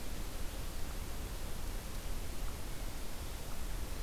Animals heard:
forest ambience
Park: Marsh-Billings-Rockefeller National Historical Park